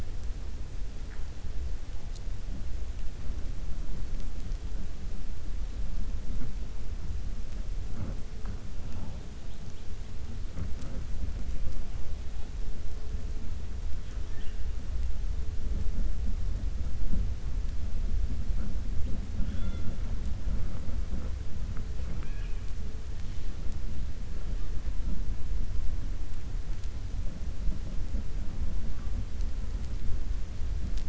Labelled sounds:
22.0	22.6	killer whale, 0.34 to 3.4 kHz

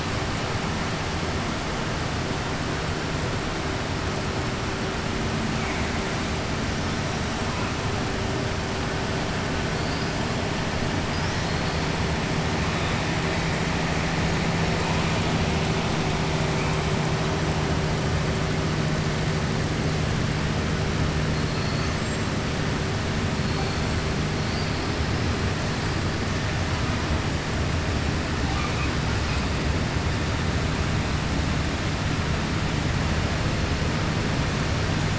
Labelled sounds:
21.4	22.3	killer whale, 4.3 to 7.9 kHz
24.4	24.8	killer whale, 4.2 to 5.2 kHz

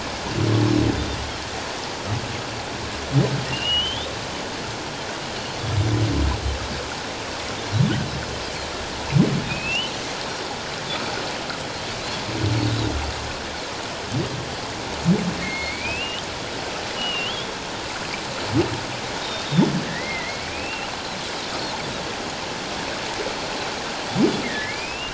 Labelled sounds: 3.5	4.1	humpback whale, 2.7 to 3.8 kHz
9.5	9.9	humpback whale, 2.3 to 3.1 kHz
15.4	16.3	humpback whale, 2.1 to 3.3 kHz
17.0	17.5	humpback whale, 2.6 to 3.6 kHz
19.2	19.7	Pacific white-sided dolphin, 3.3 to 3.9 kHz
19.8	20.9	humpback whale, 1.7 to 3.0 kHz
24.4	25.1	humpback whale, 1.7 to 2.9 kHz

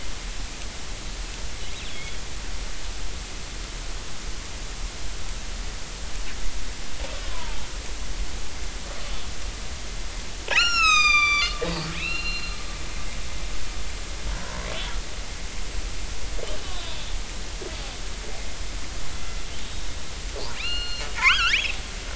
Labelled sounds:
1.8	2.2	killer whale, northern resident, 3.2 to 3.7 kHz
7.3	7.6	killer whale, northern resident, 0.83 to 1.1 kHz
10.5	11.6	killer whale, northern resident, 1.1 to 8.0 kHz
12.0	12.6	killer whale, northern resident, 2.4 to 4.2 kHz
14.3	15.0	killer whale, northern resident, 0.90 to 3.5 kHz
19.6	19.9	killer whale, northern resident, 3.7 to 3.8 kHz
20.5	21.7	killer whale, northern resident, 0.83 to 4.3 kHz

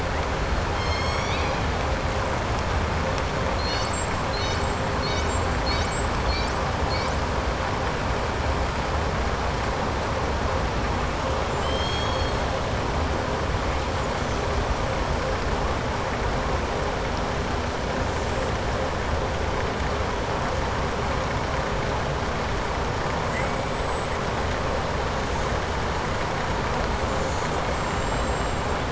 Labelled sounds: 11.4	12.4	killer whale, southern resident, 3.0 to 8.0 kHz
23.2	24.1	killer whale, southern resident, 7.0 to 8.0 kHz
27.7	28.7	killer whale, southern resident, 7.3 to 8.0 kHz

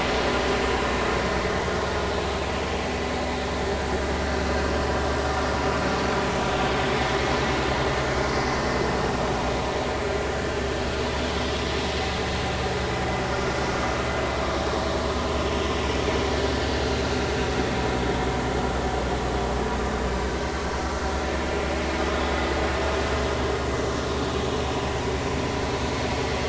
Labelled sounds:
22.0	22.2	vessel noise, 1.2 to 1.3 kHz

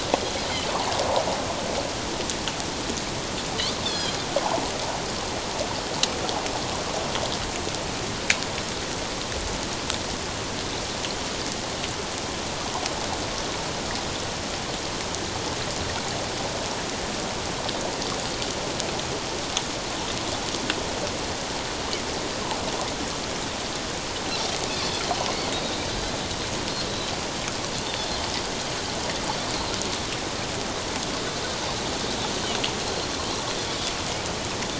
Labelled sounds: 3.8	4.1	Pacific white-sided dolphin, 3.1 to 5.3 kHz
25.5	25.8	Pacific white-sided dolphin, 3.7 to 3.9 kHz

